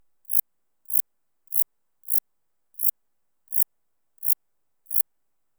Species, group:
Zeuneriana abbreviata, Orthoptera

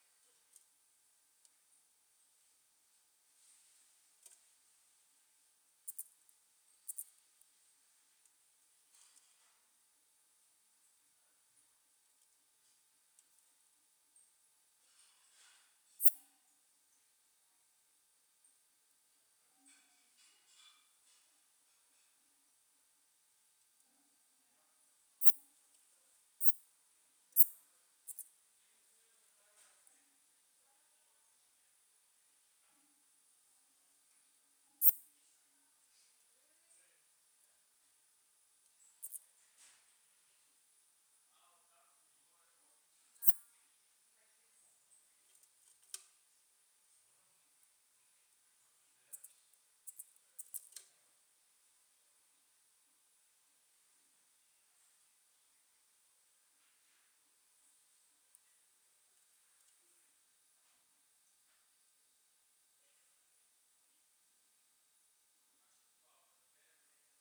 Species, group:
Poecilimon affinis, Orthoptera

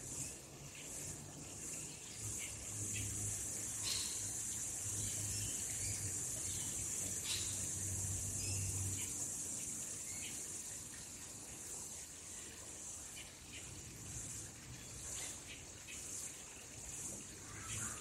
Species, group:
Aleeta curvicosta, Cicadidae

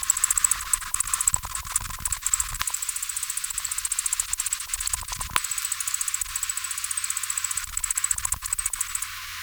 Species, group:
Decticus albifrons, Orthoptera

